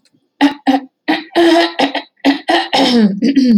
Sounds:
Throat clearing